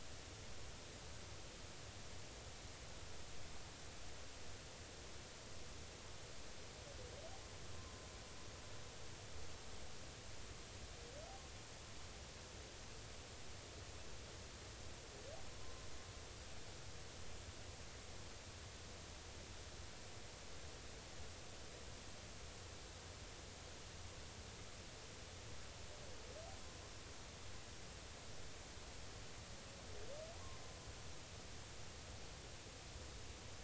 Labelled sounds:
30.3	30.6	humpback whale, 0.93 to 1.1 kHz

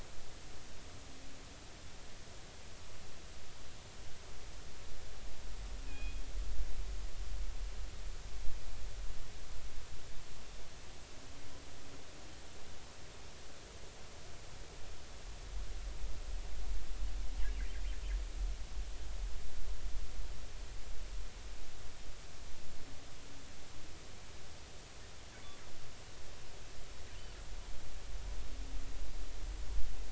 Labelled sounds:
5.8	6.2	killer whale, northern resident, G clan, call N24ii, 2.4 to 3.4 kHz

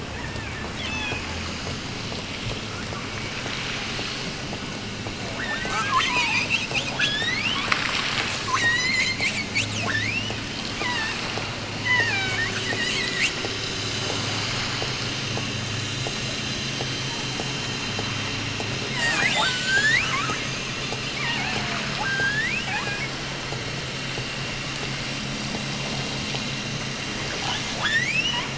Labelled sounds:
0.0	1.3	killer whale, offshore, 0.61 to 6.3 kHz
5.3	7.7	killer whale, offshore, 0.75 to 7.8 kHz
8.4	9.3	killer whale, offshore, 0.89 to 8.0 kHz
9.9	11.4	killer whale, offshore, 0.82 to 6.9 kHz
11.8	13.4	killer whale, offshore, 0.61 to 8.0 kHz
18.9	20.1	killer whale, offshore, 0.48 to 8.0 kHz
20.9	23.2	killer whale, offshore, 0.50 to 7.8 kHz
27.8	28.5	killer whale, offshore, 0.41 to 8.0 kHz

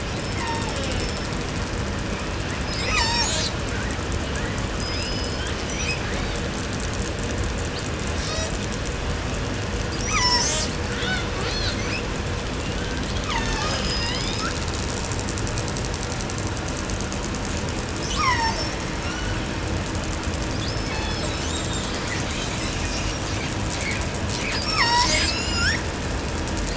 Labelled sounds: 0.0	1.3	killer whale, southern resident, call S36, 0.23 to 7.1 kHz
2.6	3.6	killer whale, southern resident, call S36, 0.38 to 8.0 kHz
4.7	5.6	killer whale, southern resident, call S19, 0.51 to 7.8 kHz
5.8	6.5	killer whale, southern resident, call S18, 0.45 to 6.7 kHz
7.5	8.7	killer whale, southern resident, call S18, 0.38 to 8.0 kHz
9.8	10.7	killer whale, southern resident, call S36, 0.36 to 8.0 kHz
10.9	11.8	killer whale, southern resident, call S18, 0.49 to 8.0 kHz
11.7	12.1	killer whale, 1.1 to 6.8 kHz
12.5	13.1	killer whale, southern resident, 0.59 to 4.9 kHz
13.1	14.2	killer whale, southern resident, call S36, 0.36 to 6.7 kHz
13.8	14.6	killer whale, southern resident, call S19, 0.38 to 5.9 kHz
18.0	18.8	killer whale, southern resident, call S36, 0.51 to 8.0 kHz
18.9	19.6	killer whale, 0.78 to 6.7 kHz
20.6	21.6	killer whale, southern resident, call S36, 0.38 to 6.1 kHz
21.1	24.7	killer whale, southern resident, call S10, 0.32 to 8.0 kHz
24.6	25.4	killer whale, southern resident, call S36, 0.30 to 8.0 kHz
24.8	26.0	killer whale, southern resident, call S19, 0.23 to 8.0 kHz

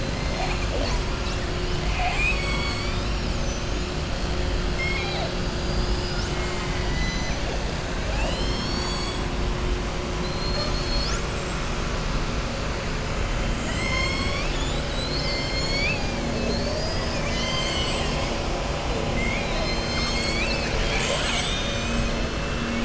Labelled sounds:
1.7	3.8	killer whale, southern resident, 0.75 to 7.9 kHz
4.7	5.3	killer whale, southern resident, 0.65 to 5.4 kHz
6.1	7.4	killer whale, southern resident, 1.1 to 7.0 kHz
8.0	9.2	killer whale, southern resident, 0.62 to 8.0 kHz

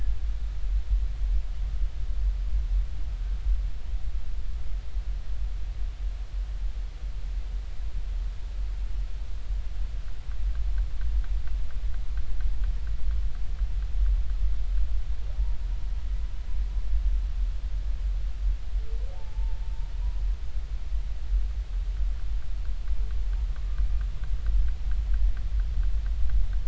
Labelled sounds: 19.2	19.6	humpback whale, 0.83 to 1.0 kHz

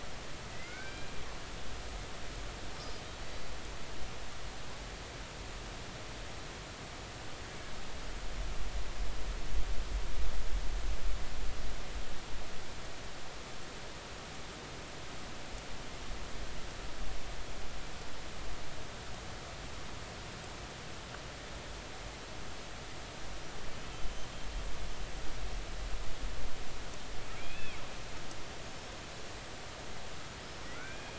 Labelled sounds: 0.5	1.1	humpback whale, 1.4 to 2.4 kHz
2.8	3.5	humpback whale, 4.5 to 5.0 kHz
23.9	24.3	humpback whale, 3.0 to 3.1 kHz
27.4	27.8	humpback whale, 2.1 to 3.6 kHz
30.8	31.1	humpback whale, 1.3 to 2.5 kHz

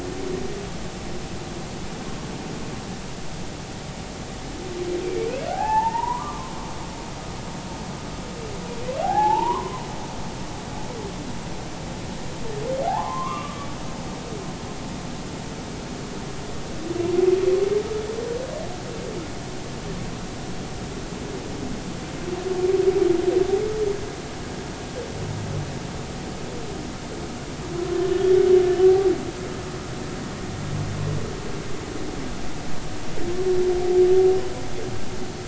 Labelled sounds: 5.0	6.5	humpback whale, 0.80 to 2.6 kHz
9.0	9.8	humpback whale, 0.80 to 1.8 kHz
12.9	13.7	humpback whale, 0.80 to 1.3 kHz

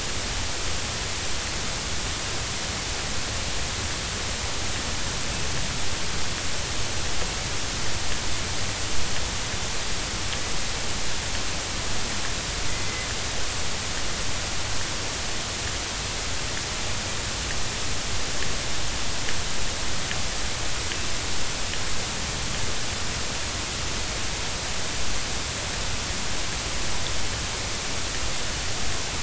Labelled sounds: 12.7	13.1	killer whale, northern resident, A clan, AA subclan, 2.0 to 2.1 kHz

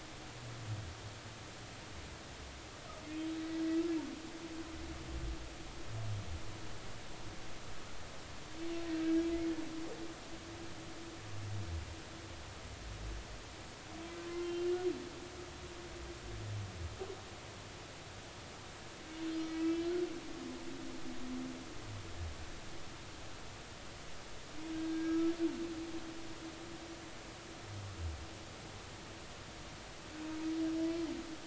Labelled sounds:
8.9	9.3	humpback whale, 1.5 to 1.7 kHz
14.4	14.7	humpback whale, 2.7 to 2.8 kHz
19.6	19.8	humpback whale, 2.6 to 2.7 kHz
24.7	25.3	humpback whale, 1.2 to 1.7 kHz

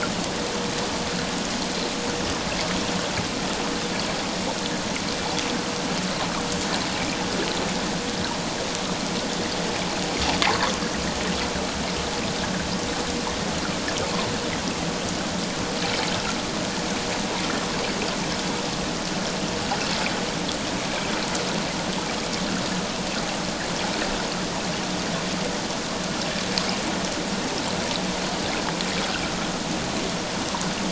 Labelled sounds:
10.4	10.6	fish, 0.78 to 1.2 kHz

